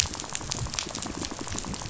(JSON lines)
{"label": "biophony, rattle", "recorder": "SoundTrap 500"}